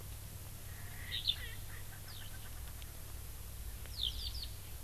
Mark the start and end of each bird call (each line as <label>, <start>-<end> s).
Erckel's Francolin (Pternistis erckelii), 0.7-2.6 s
Eurasian Skylark (Alauda arvensis), 1.1-1.4 s
Eurasian Skylark (Alauda arvensis), 2.0-2.3 s
Eurasian Skylark (Alauda arvensis), 3.9-4.5 s